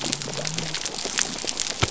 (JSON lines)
{"label": "biophony", "recorder": "SoundTrap 300"}